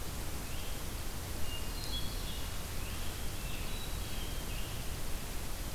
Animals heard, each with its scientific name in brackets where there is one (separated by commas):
Hermit Thrush (Catharus guttatus), Scarlet Tanager (Piranga olivacea)